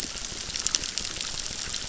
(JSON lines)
{"label": "biophony, crackle", "recorder": "SoundTrap 600"}